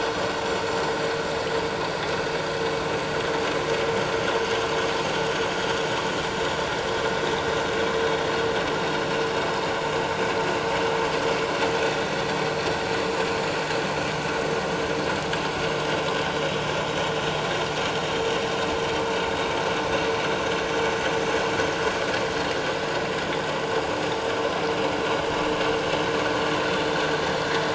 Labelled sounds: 20.7	20.9	vessel noise, 7.1 to 7.4 kHz

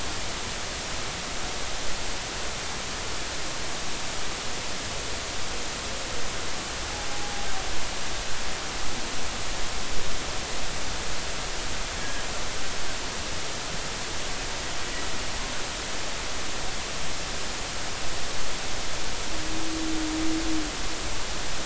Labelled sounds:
7.1	7.5	humpback whale, 0.80 to 0.86 kHz

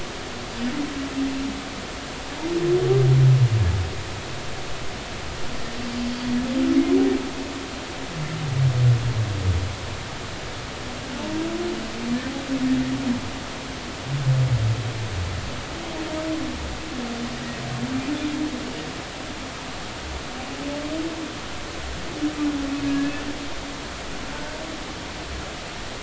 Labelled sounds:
6.0	6.3	humpback whale, 4.6 to 4.7 kHz
22.8	23.1	humpback whale, 1.6 to 1.8 kHz

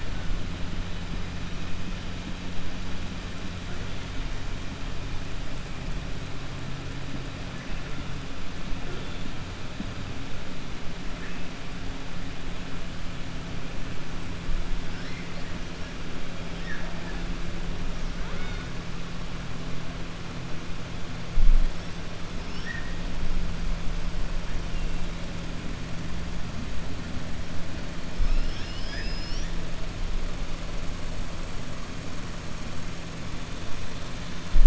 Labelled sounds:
16.5	17.2	killer whale, 0.64 to 5.6 kHz
28.1	29.5	killer whale, 1.6 to 5.8 kHz

